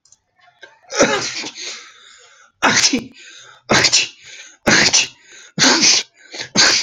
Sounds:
Sneeze